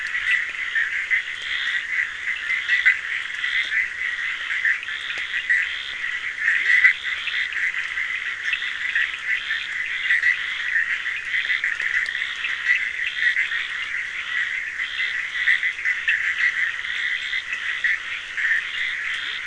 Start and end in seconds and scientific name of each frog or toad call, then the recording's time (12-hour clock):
0.0	19.4	Boana bischoffi
0.0	19.4	Scinax perereca
4.6	18.0	Sphaenorhynchus surdus
6.5	6.8	Leptodactylus latrans
3:45am